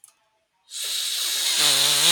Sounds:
Sniff